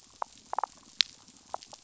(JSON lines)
{"label": "biophony, damselfish", "recorder": "SoundTrap 500"}
{"label": "biophony", "recorder": "SoundTrap 500"}